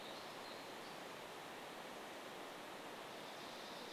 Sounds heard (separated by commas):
Dark-eyed Junco song, unidentified sound